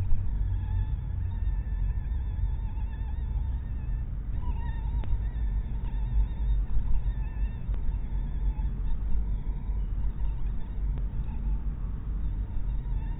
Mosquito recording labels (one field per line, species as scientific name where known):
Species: mosquito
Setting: cup